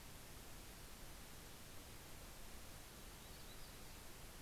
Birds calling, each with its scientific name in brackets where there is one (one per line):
Yellow-rumped Warbler (Setophaga coronata)